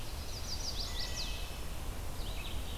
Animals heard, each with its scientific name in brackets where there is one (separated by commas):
Red-eyed Vireo (Vireo olivaceus), Chestnut-sided Warbler (Setophaga pensylvanica), Wood Thrush (Hylocichla mustelina)